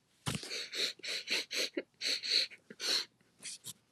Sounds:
Sniff